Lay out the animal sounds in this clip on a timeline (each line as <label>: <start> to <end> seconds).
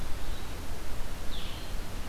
Red-eyed Vireo (Vireo olivaceus): 0.0 to 2.1 seconds
Blue-headed Vireo (Vireo solitarius): 1.2 to 2.1 seconds